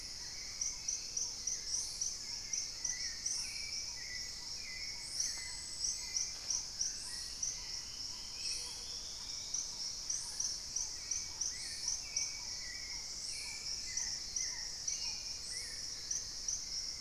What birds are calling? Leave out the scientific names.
Black-tailed Trogon, Hauxwell's Thrush, Paradise Tanager, Gray-fronted Dove, Dusky-throated Antshrike, Long-billed Woodcreeper